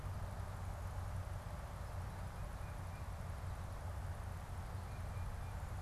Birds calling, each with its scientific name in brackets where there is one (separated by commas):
Tufted Titmouse (Baeolophus bicolor)